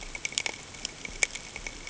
{"label": "ambient", "recorder": "HydroMoth"}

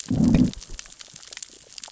{"label": "biophony, growl", "recorder": "SoundTrap 600 or HydroMoth"}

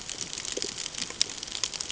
{"label": "ambient", "recorder": "HydroMoth"}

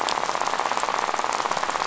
{"label": "biophony, rattle", "recorder": "SoundTrap 500"}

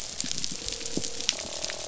{"label": "biophony, croak", "recorder": "SoundTrap 500"}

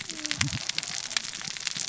{"label": "biophony, cascading saw", "recorder": "SoundTrap 600 or HydroMoth"}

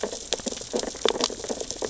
{"label": "biophony, sea urchins (Echinidae)", "recorder": "SoundTrap 600 or HydroMoth"}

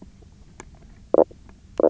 {"label": "biophony, knock croak", "recorder": "SoundTrap 300"}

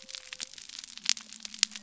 {"label": "biophony", "recorder": "SoundTrap 300"}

